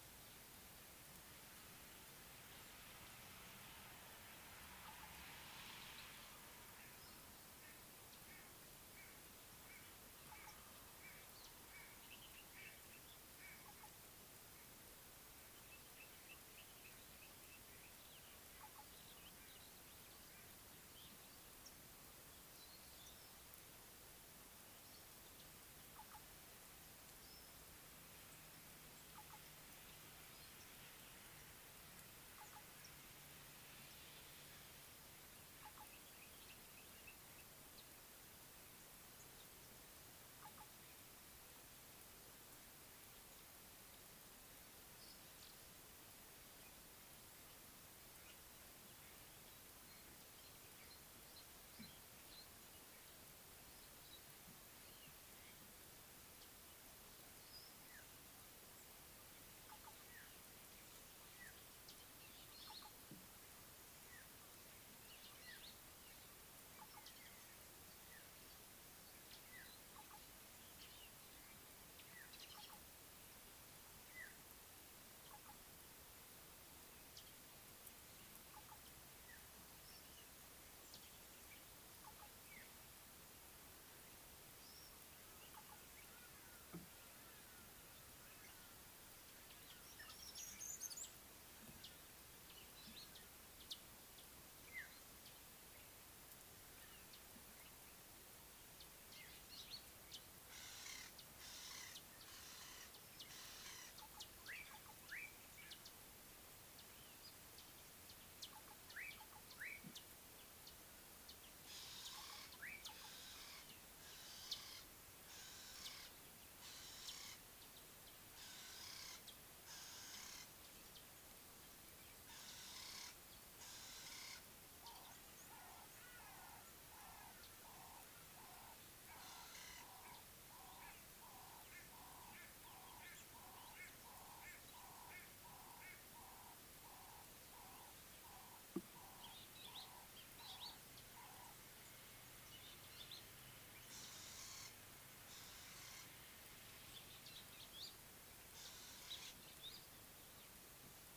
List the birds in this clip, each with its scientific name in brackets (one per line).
Ring-necked Dove (Streptopelia capicola)
Mariqua Sunbird (Cinnyris mariquensis)
Scarlet-chested Sunbird (Chalcomitra senegalensis)
Slate-colored Boubou (Laniarius funebris)
White-bellied Go-away-bird (Corythaixoides leucogaster)
African Black-headed Oriole (Oriolus larvatus)